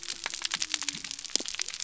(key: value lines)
label: biophony
recorder: SoundTrap 300